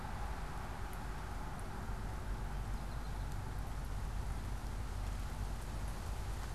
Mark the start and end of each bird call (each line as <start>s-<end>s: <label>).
2.5s-3.5s: American Goldfinch (Spinus tristis)